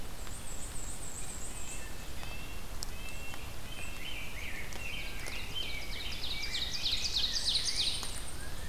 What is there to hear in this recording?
Black-and-white Warbler, Red-breasted Nuthatch, Rose-breasted Grosbeak, Ovenbird, unidentified call